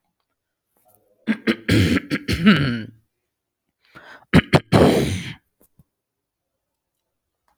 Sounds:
Throat clearing